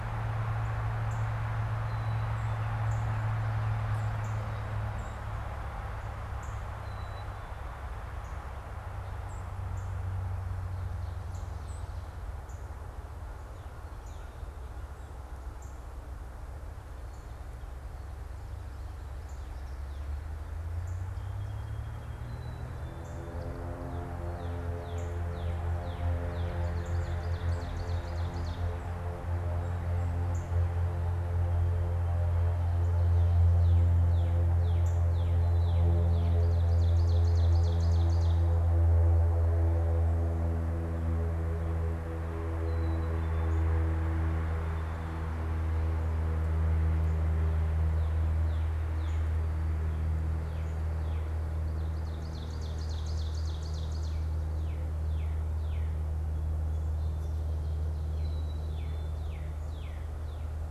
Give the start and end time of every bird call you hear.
[0.00, 21.66] Northern Cardinal (Cardinalis cardinalis)
[1.76, 2.66] Black-capped Chickadee (Poecile atricapillus)
[6.76, 7.56] Black-capped Chickadee (Poecile atricapillus)
[9.16, 11.96] Song Sparrow (Melospiza melodia)
[21.16, 22.26] Song Sparrow (Melospiza melodia)
[22.26, 23.16] Black-capped Chickadee (Poecile atricapillus)
[23.76, 36.36] Northern Cardinal (Cardinalis cardinalis)
[26.56, 28.86] Ovenbird (Seiurus aurocapilla)
[36.56, 38.56] Ovenbird (Seiurus aurocapilla)
[42.46, 43.56] Black-capped Chickadee (Poecile atricapillus)
[47.66, 60.71] Northern Cardinal (Cardinalis cardinalis)
[51.96, 54.26] Ovenbird (Seiurus aurocapilla)
[58.16, 59.16] Black-capped Chickadee (Poecile atricapillus)

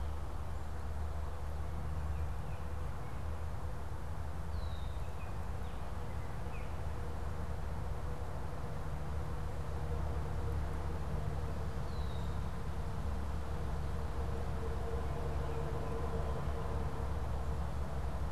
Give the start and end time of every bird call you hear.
[1.77, 3.47] Baltimore Oriole (Icterus galbula)
[4.37, 5.17] Red-winged Blackbird (Agelaius phoeniceus)
[5.07, 6.87] Baltimore Oriole (Icterus galbula)
[11.77, 12.57] Red-winged Blackbird (Agelaius phoeniceus)
[14.67, 16.87] Baltimore Oriole (Icterus galbula)

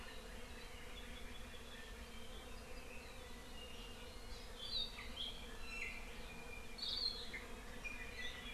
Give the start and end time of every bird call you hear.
[5.60, 6.00] Iiwi (Drepanis coccinea)

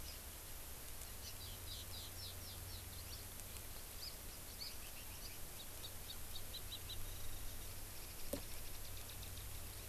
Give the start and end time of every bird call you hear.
[0.02, 0.22] Hawaii Amakihi (Chlorodrepanis virens)
[3.92, 4.12] Hawaii Amakihi (Chlorodrepanis virens)

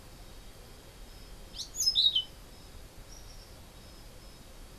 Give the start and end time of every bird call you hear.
[1.24, 2.44] Orange-billed Nightingale-Thrush (Catharus aurantiirostris)

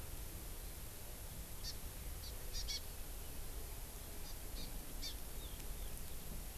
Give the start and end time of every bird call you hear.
[1.60, 1.70] Hawaii Amakihi (Chlorodrepanis virens)
[2.20, 2.80] Hawaii Amakihi (Chlorodrepanis virens)
[4.20, 4.30] Hawaii Amakihi (Chlorodrepanis virens)
[4.60, 4.70] Hawaii Amakihi (Chlorodrepanis virens)
[5.00, 5.10] Hawaii Amakihi (Chlorodrepanis virens)

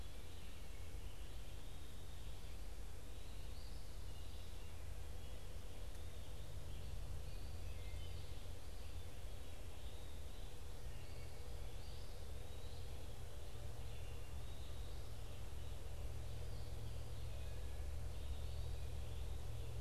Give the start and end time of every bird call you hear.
[0.00, 1.70] American Robin (Turdus migratorius)
[2.90, 19.81] American Robin (Turdus migratorius)
[3.20, 4.40] Eastern Wood-Pewee (Contopus virens)
[7.60, 8.20] Wood Thrush (Hylocichla mustelina)
[11.60, 13.00] Eastern Wood-Pewee (Contopus virens)
[17.80, 19.40] Eastern Wood-Pewee (Contopus virens)

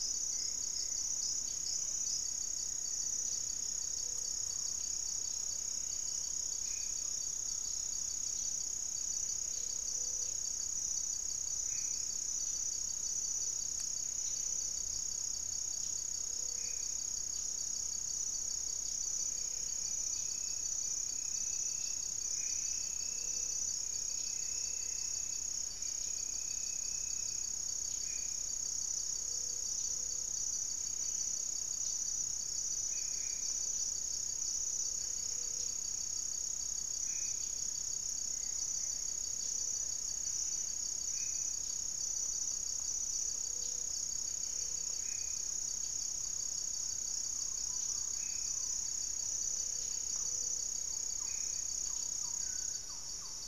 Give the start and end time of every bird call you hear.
[0.00, 5.10] Black-faced Antthrush (Formicarius analis)
[3.10, 4.70] Gray-fronted Dove (Leptotila rufaxilla)
[4.20, 9.60] unidentified bird
[6.30, 7.10] Black-faced Antthrush (Formicarius analis)
[9.50, 53.47] Gray-fronted Dove (Leptotila rufaxilla)
[11.40, 12.20] Black-faced Antthrush (Formicarius analis)
[16.30, 17.10] Black-faced Antthrush (Formicarius analis)
[22.00, 22.80] Black-faced Antthrush (Formicarius analis)
[24.00, 25.70] Goeldi's Antbird (Akletos goeldii)
[27.80, 28.60] Black-faced Antthrush (Formicarius analis)
[30.60, 31.30] unidentified bird
[32.70, 53.47] Black-faced Antthrush (Formicarius analis)
[38.00, 39.30] Goeldi's Antbird (Akletos goeldii)
[46.80, 50.20] Gray-cowled Wood-Rail (Aramides cajaneus)
[50.00, 53.47] Thrush-like Wren (Campylorhynchus turdinus)

